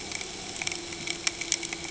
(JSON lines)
{"label": "anthrophony, boat engine", "recorder": "HydroMoth"}